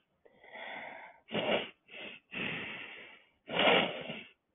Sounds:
Sniff